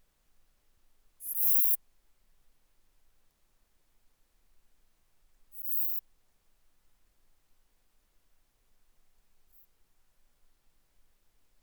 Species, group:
Eupholidoptera forcipata
Orthoptera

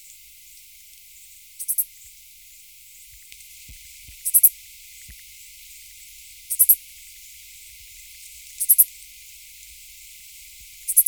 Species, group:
Pholidoptera fallax
Orthoptera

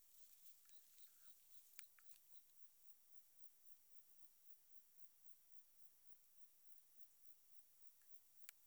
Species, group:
Metrioptera saussuriana
Orthoptera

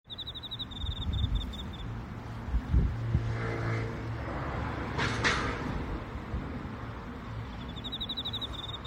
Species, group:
Teleogryllus emma
Orthoptera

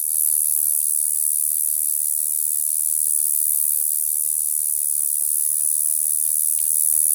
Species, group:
Bradyporus oniscus
Orthoptera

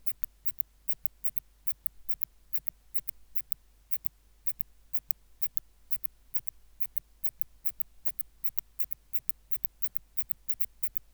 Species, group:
Phaneroptera falcata
Orthoptera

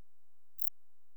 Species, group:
Pholidoptera griseoaptera
Orthoptera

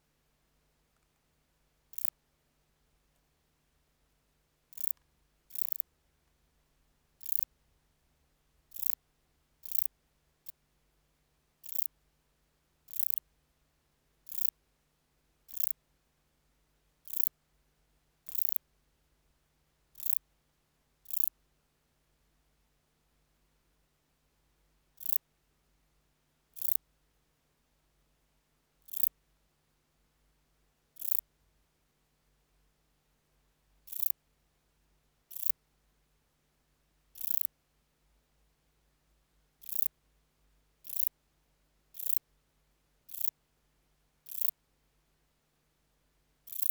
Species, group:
Metrioptera saussuriana
Orthoptera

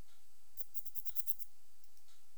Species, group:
Phaneroptera falcata
Orthoptera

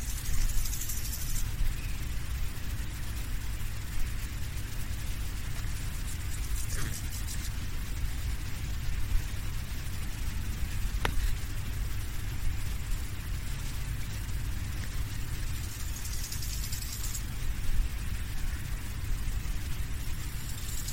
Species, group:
Chorthippus biguttulus
Orthoptera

